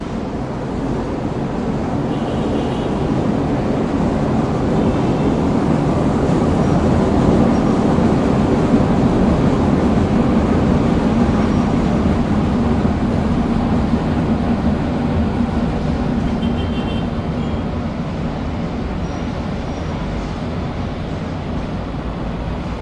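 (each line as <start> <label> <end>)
0.0 A train passes by. 14.7
0.0 Many vehicles are driving on a crowded road. 22.8
2.2 A car horn honks repeatedly. 3.2
4.6 A car horn honks repeatedly. 5.6
16.2 A car horn honks repeatedly. 17.6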